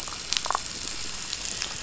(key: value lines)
label: biophony, damselfish
recorder: SoundTrap 500